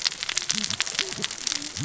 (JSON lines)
{"label": "biophony, cascading saw", "recorder": "SoundTrap 600 or HydroMoth"}